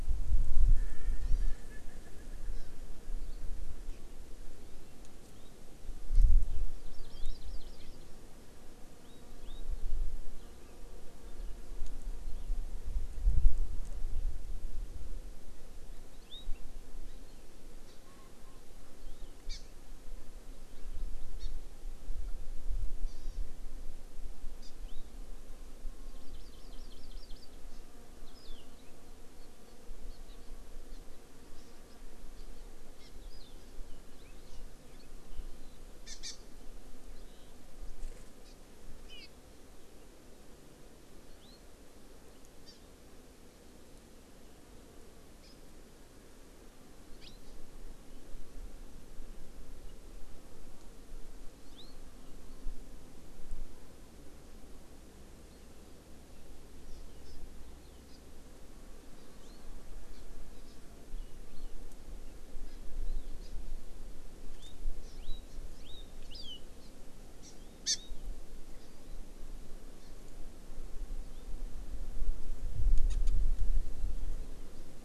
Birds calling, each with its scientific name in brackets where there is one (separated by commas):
Erckel's Francolin (Pternistis erckelii), Hawaii Amakihi (Chlorodrepanis virens)